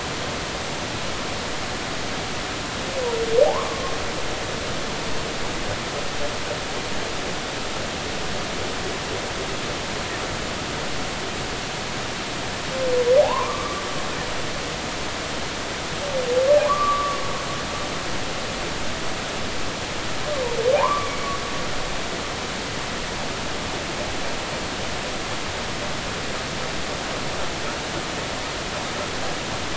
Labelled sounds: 3.5	3.8	humpback whale, 0.80 to 1.3 kHz
13.2	13.8	humpback whale, 0.80 to 1.2 kHz
16.7	17.2	humpback whale, 0.96 to 1.2 kHz
20.8	21.1	humpback whale, 0.80 to 1.3 kHz

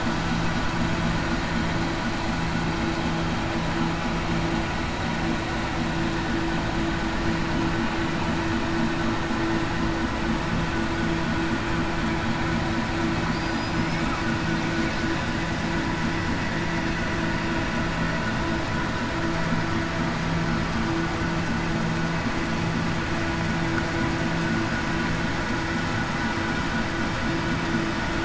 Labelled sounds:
13.3	14.0	killer whale, southern resident, 4.6 to 5.3 kHz

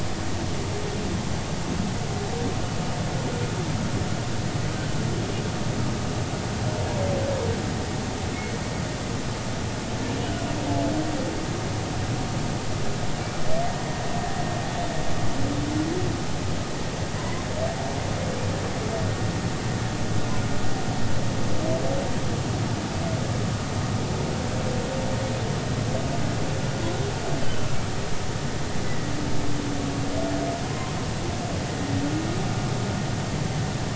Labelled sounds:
17.2	17.4	humpback whale, 0.93 to 1.1 kHz
28.9	29.1	humpback whale, 1.9 to 2.0 kHz
30.7	31.0	humpback whale, 0.96 to 1.1 kHz

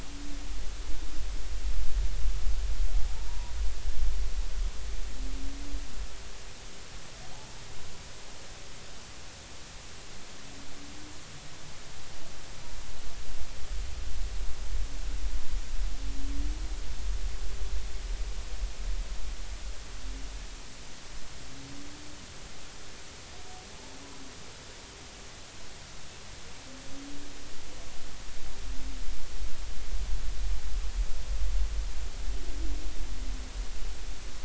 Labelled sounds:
3.3	3.5	humpback whale, 0.90 to 1.0 kHz

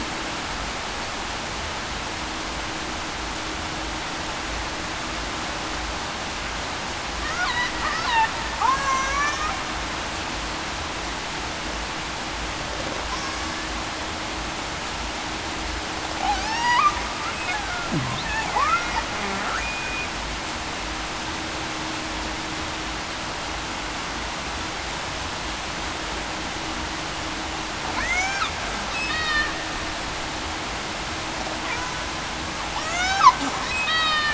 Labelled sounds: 8.7	9.2	killer whale, Bigg's (transient), 5.8 to 6.1 kHz
16.2	17.0	killer whale, Bigg's (transient), 0.70 to 3.0 kHz
18.6	18.9	killer whale, Bigg's (transient), 0.91 to 1.5 kHz
19.6	20.1	killer whale, Bigg's (transient), 2.4 to 8.0 kHz
28.0	28.4	killer whale, Bigg's (transient), 1.8 to 2.5 kHz
29.1	29.4	killer whale, Bigg's (transient), 3.6 to 3.8 kHz
32.7	33.3	killer whale, Bigg's (transient), 0.61 to 6.4 kHz
33.9	34.3	killer whale, Bigg's (transient), 3.6 to 3.9 kHz

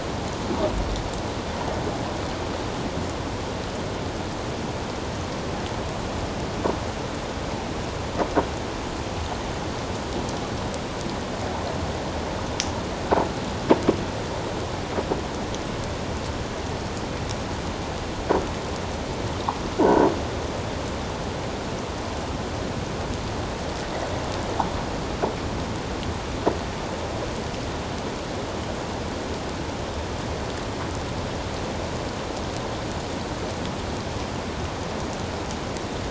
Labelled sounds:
19.7	20.1	croaking sound likely from a nearby submerged object, 1.3 to 1.6 kHz

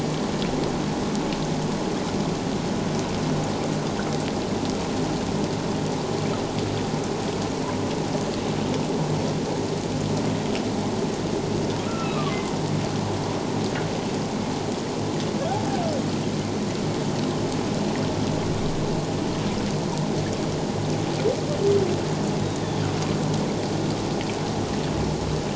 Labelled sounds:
11.8	12.4	humpback whale, 1.0 to 2.7 kHz
22.4	22.8	humpback whale, 3.2 to 3.9 kHz

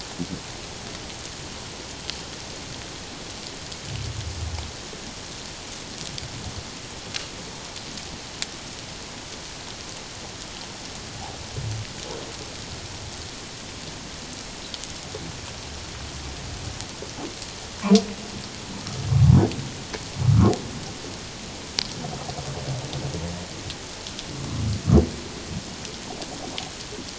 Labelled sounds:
20.2	20.5	humpback whale, 1.0 to 1.5 kHz

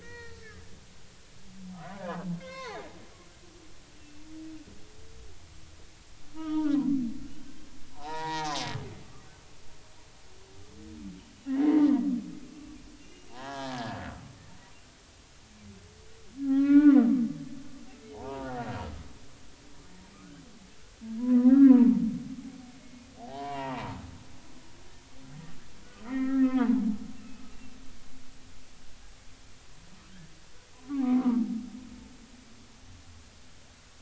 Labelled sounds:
0.0	1.4	humpback whale, 0.86 to 4.4 kHz
1.7	2.9	humpback whale, 0.80 to 4.8 kHz
4.0	4.2	humpback whale, 2.6 to 2.8 kHz
6.3	6.9	humpback whale, 0.80 to 3.3 kHz
7.9	8.5	humpback whale, 0.80 to 2.0 kHz
11.5	11.9	humpback whale, 1.8 to 2.1 kHz
12.5	13.8	humpback whale, 0.80 to 3.2 kHz
16.4	17.0	humpback whale, 0.96 to 3.5 kHz
18.1	18.5	humpback whale, 0.86 to 1.3 kHz
21.2	22.0	humpback whale, 0.86 to 1.7 kHz
23.2	24.0	humpback whale, 0.80 to 2.9 kHz
26.0	26.8	humpback whale, 0.83 to 2.2 kHz
27.2	27.8	humpback whale, 2.5 to 2.8 kHz
30.8	31.5	humpback whale, 0.86 to 1.4 kHz

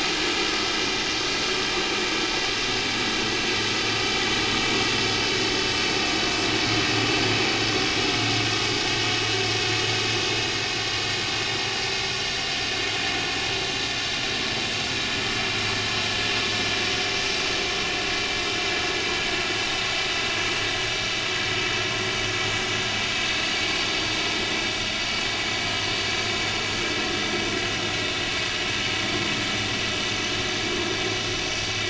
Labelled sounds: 12.1	12.4	vessel noise, 4.5 to 4.6 kHz

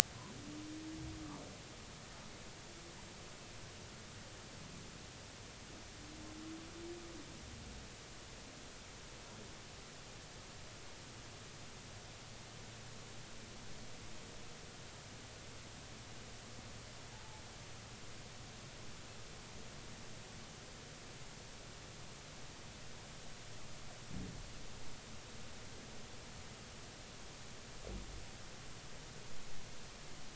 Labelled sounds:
17.1	17.4	humpback whale, 0.80 to 0.93 kHz

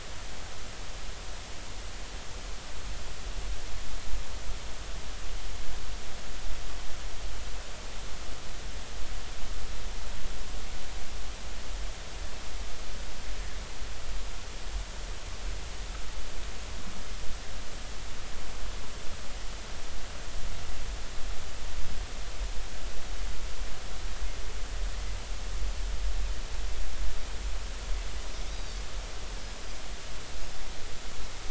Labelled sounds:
28.5	28.8	Pacific white-sided dolphin, 3.6 to 4.9 kHz

